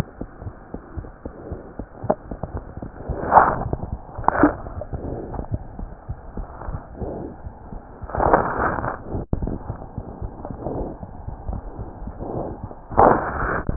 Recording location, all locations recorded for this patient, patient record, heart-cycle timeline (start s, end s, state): aortic valve (AV)
aortic valve (AV)+pulmonary valve (PV)+tricuspid valve (TV)+mitral valve (MV)
#Age: Child
#Sex: Female
#Height: 86.0 cm
#Weight: 11.7 kg
#Pregnancy status: False
#Murmur: Absent
#Murmur locations: nan
#Most audible location: nan
#Systolic murmur timing: nan
#Systolic murmur shape: nan
#Systolic murmur grading: nan
#Systolic murmur pitch: nan
#Systolic murmur quality: nan
#Diastolic murmur timing: nan
#Diastolic murmur shape: nan
#Diastolic murmur grading: nan
#Diastolic murmur pitch: nan
#Diastolic murmur quality: nan
#Outcome: Abnormal
#Campaign: 2015 screening campaign
0.00	0.42	unannotated
0.42	0.52	S1
0.52	0.70	systole
0.70	0.84	S2
0.84	0.94	diastole
0.94	1.03	S1
1.03	1.23	systole
1.23	1.31	S2
1.31	1.49	diastole
1.49	1.57	S1
1.57	1.77	systole
1.77	1.85	S2
1.85	2.01	diastole
2.01	2.09	S1
2.09	2.28	systole
2.28	2.37	S2
2.37	2.52	diastole
2.52	2.60	S1
2.60	2.80	systole
2.80	2.88	S2
2.88	3.07	diastole
3.07	3.15	S1
3.15	13.76	unannotated